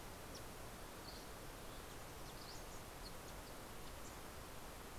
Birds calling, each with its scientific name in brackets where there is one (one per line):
Dusky Flycatcher (Empidonax oberholseri)